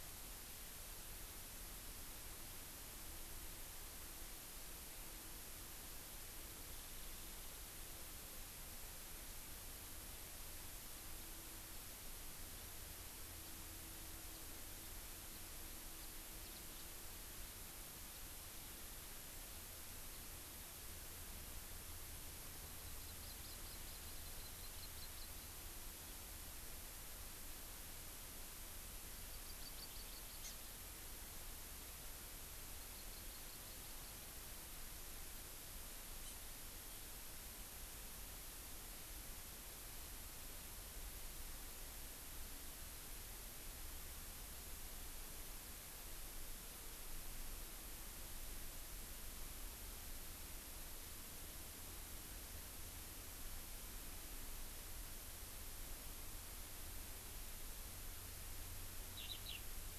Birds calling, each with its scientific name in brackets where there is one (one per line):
Hawaii Amakihi (Chlorodrepanis virens)
Eurasian Skylark (Alauda arvensis)